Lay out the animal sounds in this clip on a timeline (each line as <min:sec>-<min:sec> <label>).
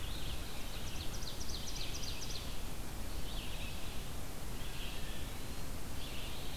0:00.0-0:06.6 Red-eyed Vireo (Vireo olivaceus)
0:00.4-0:02.7 Ovenbird (Seiurus aurocapilla)
0:04.8-0:05.8 Eastern Wood-Pewee (Contopus virens)